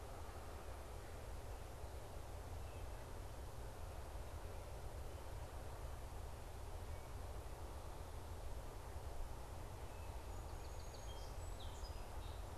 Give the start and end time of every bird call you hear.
[6.64, 7.54] Wood Thrush (Hylocichla mustelina)
[9.74, 12.54] Song Sparrow (Melospiza melodia)

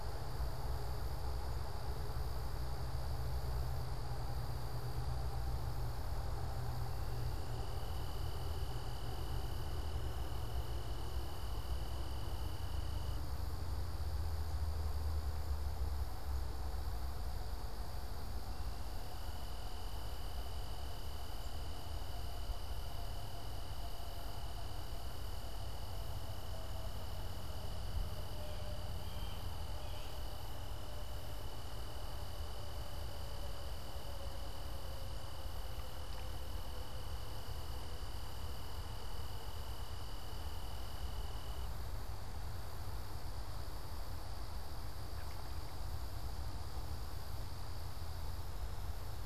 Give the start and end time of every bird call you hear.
[28.13, 30.73] Blue Jay (Cyanocitta cristata)

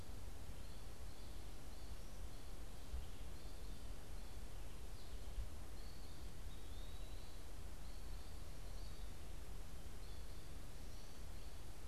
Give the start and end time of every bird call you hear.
[1.60, 11.87] American Goldfinch (Spinus tristis)
[6.00, 7.50] Eastern Wood-Pewee (Contopus virens)

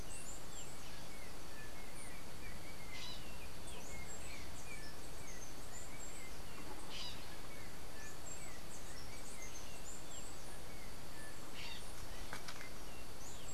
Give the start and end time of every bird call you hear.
[0.00, 13.54] Yellow-backed Oriole (Icterus chrysater)
[2.75, 11.85] Bronze-winged Parrot (Pionus chalcopterus)

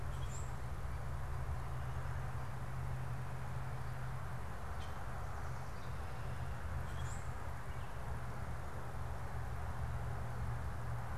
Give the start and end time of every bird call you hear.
[0.00, 0.60] Common Grackle (Quiscalus quiscula)
[6.70, 7.40] Common Grackle (Quiscalus quiscula)

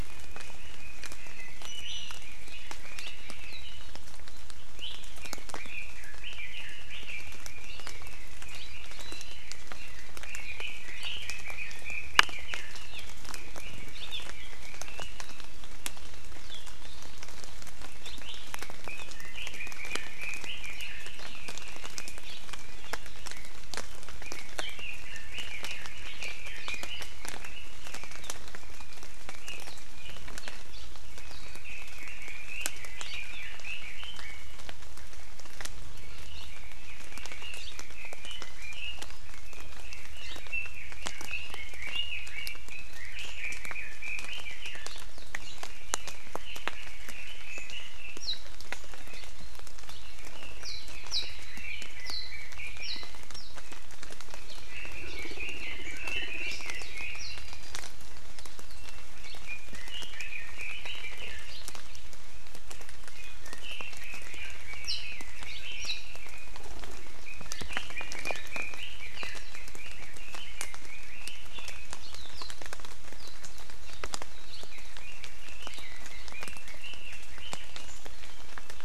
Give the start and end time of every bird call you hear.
[0.10, 3.80] Red-billed Leiothrix (Leiothrix lutea)
[1.30, 2.30] Iiwi (Drepanis coccinea)
[4.70, 5.00] Iiwi (Drepanis coccinea)
[5.20, 15.10] Red-billed Leiothrix (Leiothrix lutea)
[18.90, 22.20] Red-billed Leiothrix (Leiothrix lutea)
[22.20, 22.40] Hawaii Amakihi (Chlorodrepanis virens)
[24.20, 27.80] Red-billed Leiothrix (Leiothrix lutea)
[31.00, 34.60] Red-billed Leiothrix (Leiothrix lutea)
[36.50, 44.90] Red-billed Leiothrix (Leiothrix lutea)
[45.30, 48.20] Red-billed Leiothrix (Leiothrix lutea)
[48.20, 48.40] Warbling White-eye (Zosterops japonicus)
[50.00, 53.20] Red-billed Leiothrix (Leiothrix lutea)
[50.60, 51.30] Warbling White-eye (Zosterops japonicus)
[52.00, 52.30] Warbling White-eye (Zosterops japonicus)
[52.80, 53.50] Warbling White-eye (Zosterops japonicus)
[54.60, 57.60] Red-billed Leiothrix (Leiothrix lutea)
[56.80, 57.40] Warbling White-eye (Zosterops japonicus)
[59.40, 61.50] Red-billed Leiothrix (Leiothrix lutea)
[63.10, 66.60] Red-billed Leiothrix (Leiothrix lutea)
[64.80, 65.00] Warbling White-eye (Zosterops japonicus)
[65.80, 65.90] Warbling White-eye (Zosterops japonicus)
[67.20, 71.90] Red-billed Leiothrix (Leiothrix lutea)
[72.30, 72.60] Warbling White-eye (Zosterops japonicus)
[73.20, 73.30] Warbling White-eye (Zosterops japonicus)
[74.70, 77.90] Red-billed Leiothrix (Leiothrix lutea)

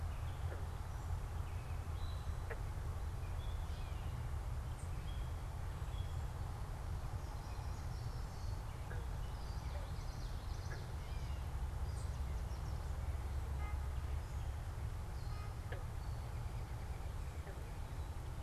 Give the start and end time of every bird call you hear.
[2.70, 11.60] Gray Catbird (Dumetella carolinensis)
[4.60, 5.10] unidentified bird
[9.10, 11.00] Common Yellowthroat (Geothlypis trichas)
[11.80, 12.10] unidentified bird
[16.10, 17.80] American Robin (Turdus migratorius)

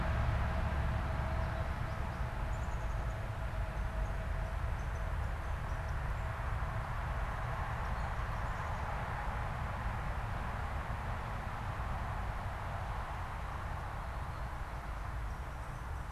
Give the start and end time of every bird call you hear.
[0.00, 3.05] Black-capped Chickadee (Poecile atricapillus)

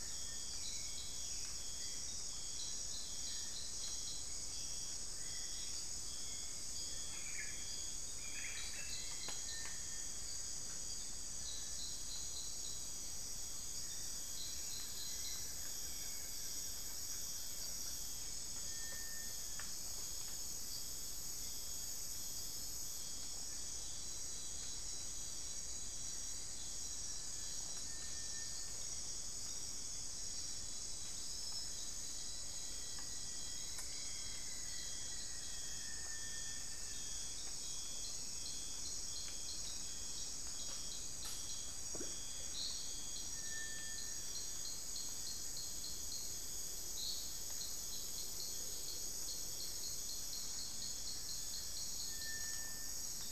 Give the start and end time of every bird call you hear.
[0.00, 2.96] Hauxwell's Thrush (Turdus hauxwelli)
[0.00, 7.36] Black-billed Thrush (Turdus ignobilis)
[6.66, 10.26] unidentified bird
[9.36, 53.31] Cinereous Tinamou (Crypturellus cinereus)
[14.46, 17.76] Rufous-fronted Antthrush (Formicarius rufifrons)
[32.36, 36.26] Rufous-fronted Antthrush (Formicarius rufifrons)

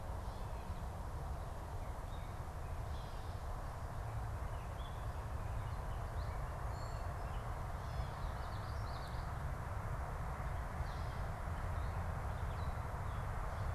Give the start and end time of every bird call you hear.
[1.93, 8.13] Gray Catbird (Dumetella carolinensis)
[8.23, 9.53] Common Yellowthroat (Geothlypis trichas)

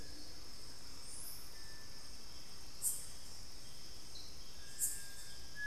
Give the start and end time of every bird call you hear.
[0.00, 5.67] Little Tinamou (Crypturellus soui)
[1.48, 1.98] Cinereous Tinamou (Crypturellus cinereus)
[4.58, 5.08] Cinereous Tinamou (Crypturellus cinereus)

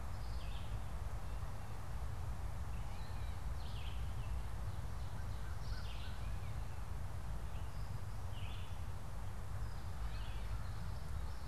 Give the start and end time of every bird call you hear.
[0.00, 11.47] Gray Catbird (Dumetella carolinensis)
[0.00, 11.47] Red-eyed Vireo (Vireo olivaceus)
[4.98, 6.58] American Crow (Corvus brachyrhynchos)

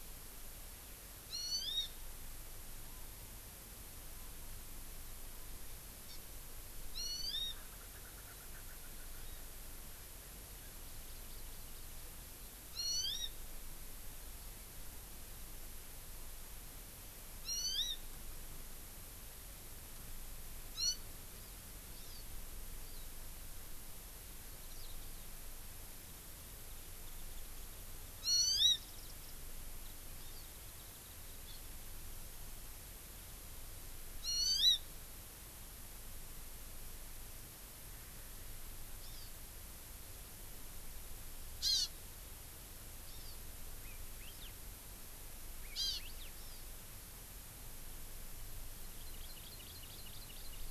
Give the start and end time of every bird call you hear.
[1.30, 1.90] Hawaii Amakihi (Chlorodrepanis virens)
[6.10, 6.20] Hawaii Amakihi (Chlorodrepanis virens)
[6.90, 7.50] Hawaii Amakihi (Chlorodrepanis virens)
[7.50, 9.20] Erckel's Francolin (Pternistis erckelii)
[12.70, 13.30] Hawaii Amakihi (Chlorodrepanis virens)
[17.40, 18.00] Hawaii Amakihi (Chlorodrepanis virens)
[20.80, 21.00] Hawaii Amakihi (Chlorodrepanis virens)
[22.00, 22.20] Hawaii Amakihi (Chlorodrepanis virens)
[28.20, 28.80] Hawaii Amakihi (Chlorodrepanis virens)
[28.80, 29.30] Warbling White-eye (Zosterops japonicus)
[30.20, 30.40] Hawaii Amakihi (Chlorodrepanis virens)
[34.20, 34.80] Hawaii Amakihi (Chlorodrepanis virens)
[39.00, 39.30] Hawaii Amakihi (Chlorodrepanis virens)
[41.60, 41.90] Hawaii Amakihi (Chlorodrepanis virens)
[43.10, 43.30] Hawaii Amakihi (Chlorodrepanis virens)
[43.80, 44.50] Hawaii Elepaio (Chasiempis sandwichensis)
[45.60, 46.30] Hawaii Elepaio (Chasiempis sandwichensis)
[45.70, 46.00] Hawaii Amakihi (Chlorodrepanis virens)
[46.30, 46.60] Hawaii Amakihi (Chlorodrepanis virens)
[48.80, 50.70] Hawaii Amakihi (Chlorodrepanis virens)

